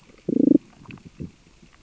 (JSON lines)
{"label": "biophony, damselfish", "recorder": "SoundTrap 600 or HydroMoth"}